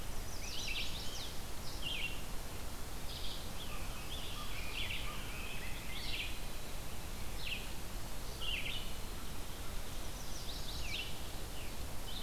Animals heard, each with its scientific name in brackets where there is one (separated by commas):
Red-eyed Vireo (Vireo olivaceus), Scarlet Tanager (Piranga olivacea), Rose-breasted Grosbeak (Pheucticus ludovicianus), Chestnut-sided Warbler (Setophaga pensylvanica), American Crow (Corvus brachyrhynchos)